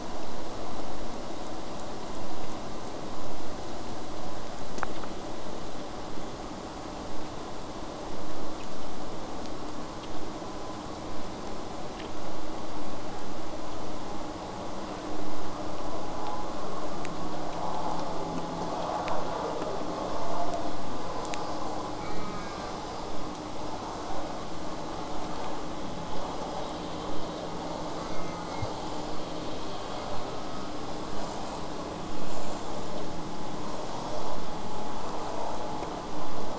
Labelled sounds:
22.0	22.7	killer whale, southern resident, J pod, call S04, 0.69 to 6.0 kHz
25.3	25.6	killer whale, southern resident, J pod, call S04, 0.26 to 5.7 kHz
28.0	28.7	killer whale, southern resident, J pod, call S04, 0.39 to 6.7 kHz

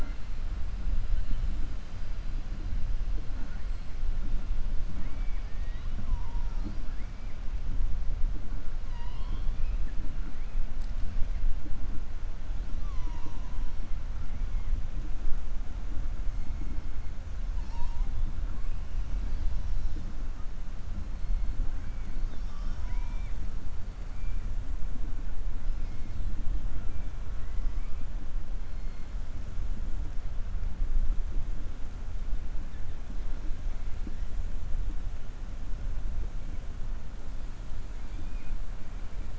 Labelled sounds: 22.1	23.4	killer whale, 0.94 to 6.4 kHz

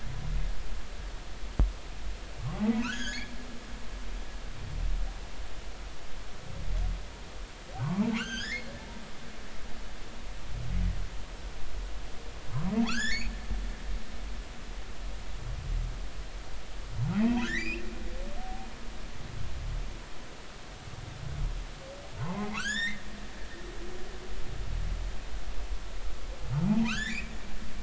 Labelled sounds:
2.6	3.3	humpback whale, 1.2 to 6.9 kHz
7.8	8.7	humpback whale, 0.83 to 7.2 kHz
12.8	13.3	humpback whale, 0.80 to 7.3 kHz
17.1	17.8	humpback whale, 0.80 to 2.8 kHz
22.2	23.0	humpback whale, 0.80 to 7.6 kHz
26.9	27.3	humpback whale, 1.2 to 7.3 kHz

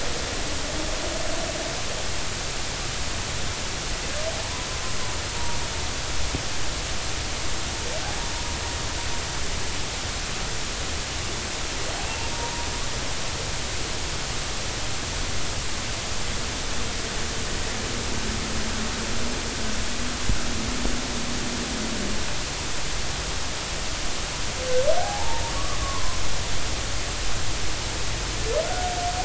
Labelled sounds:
4.4	4.7	humpback whale, 0.86 to 1.0 kHz
5.3	5.6	humpback whale, 0.90 to 0.99 kHz
12.3	12.7	humpback whale, 0.90 to 0.99 kHz
25.0	26.2	humpback whale, 0.80 to 1.2 kHz
28.7	28.9	humpback whale, 1.4 to 1.5 kHz

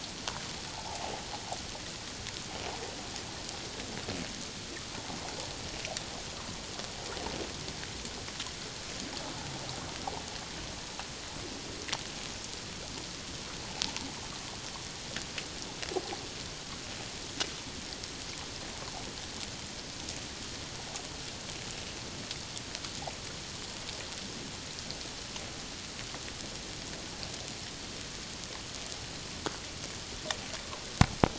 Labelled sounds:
0.7	1.1	water noise, 0.78 to 0.97 kHz

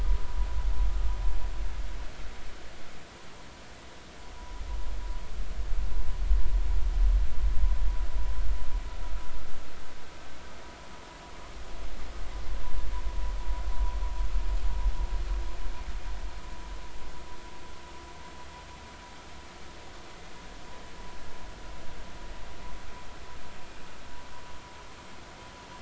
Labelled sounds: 4.3	4.6	vessel noise, 0.93 to 1.0 kHz

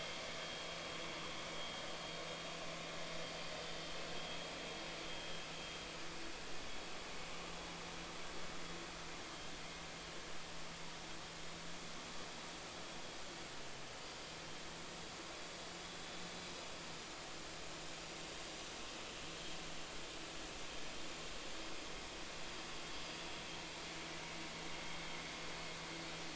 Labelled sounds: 0.4	0.7	vessel noise, 3.2 to 3.3 kHz

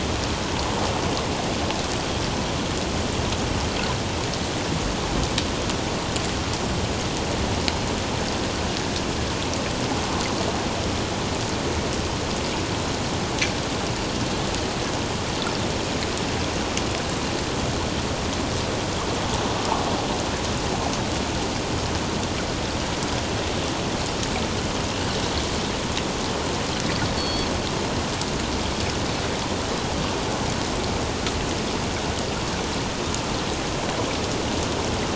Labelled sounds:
27.2	27.5	Pacific white-sided dolphin, 3.2 to 4.6 kHz

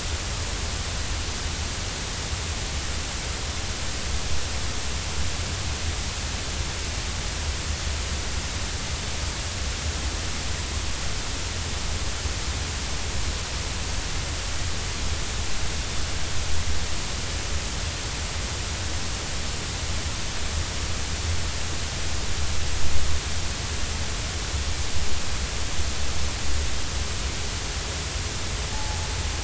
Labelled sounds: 28.7	29.0	humpback whale, 0.80 to 0.90 kHz

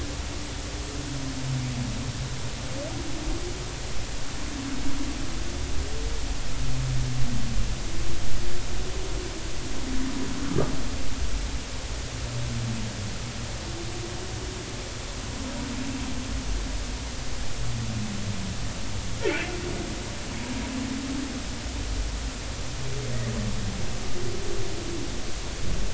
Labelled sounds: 10.4	10.7	humpback whale, 1.1 to 1.3 kHz

